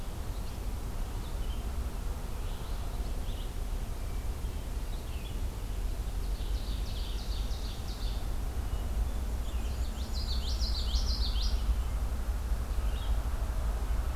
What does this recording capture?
Red-eyed Vireo, Ovenbird, Black-and-white Warbler, Common Yellowthroat